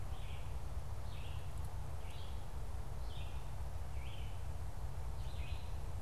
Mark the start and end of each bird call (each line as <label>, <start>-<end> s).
Red-eyed Vireo (Vireo olivaceus), 0.0-6.0 s